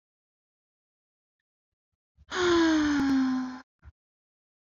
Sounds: Sigh